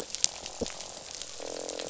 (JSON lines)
{"label": "biophony, croak", "recorder": "SoundTrap 500"}